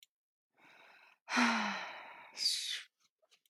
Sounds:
Sigh